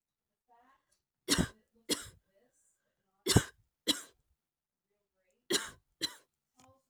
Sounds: Cough